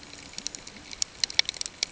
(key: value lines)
label: ambient
recorder: HydroMoth